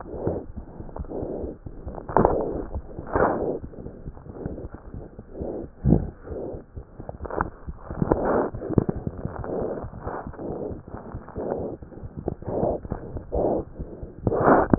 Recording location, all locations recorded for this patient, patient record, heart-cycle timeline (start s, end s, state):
aortic valve (AV)
aortic valve (AV)+pulmonary valve (PV)+tricuspid valve (TV)+mitral valve (MV)
#Age: Infant
#Sex: Female
#Height: 69.0 cm
#Weight: 7.69 kg
#Pregnancy status: False
#Murmur: Unknown
#Murmur locations: nan
#Most audible location: nan
#Systolic murmur timing: nan
#Systolic murmur shape: nan
#Systolic murmur grading: nan
#Systolic murmur pitch: nan
#Systolic murmur quality: nan
#Diastolic murmur timing: nan
#Diastolic murmur shape: nan
#Diastolic murmur grading: nan
#Diastolic murmur pitch: nan
#Diastolic murmur quality: nan
#Outcome: Abnormal
#Campaign: 2015 screening campaign
0.00	3.60	unannotated
3.60	3.70	S1
3.70	3.83	systole
3.83	3.90	S2
3.90	4.04	diastole
4.04	4.12	S1
4.12	4.25	systole
4.25	4.34	S2
4.34	4.49	diastole
4.49	4.58	S1
4.58	4.71	systole
4.71	4.79	S2
4.79	4.94	diastole
4.94	5.06	S1
5.06	5.16	systole
5.16	5.24	S2
5.24	5.37	diastole
5.37	5.47	S1
5.47	5.59	systole
5.59	5.68	S2
5.68	5.84	diastole
5.84	6.72	unannotated
6.72	6.84	S1
6.84	6.96	systole
6.96	7.05	S2
7.05	7.20	diastole
7.20	7.28	S1
7.28	14.78	unannotated